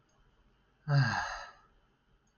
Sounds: Sigh